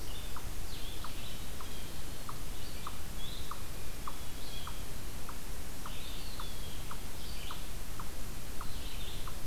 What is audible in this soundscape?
Red-eyed Vireo, Blue-headed Vireo, unknown mammal, Blue Jay, Eastern Wood-Pewee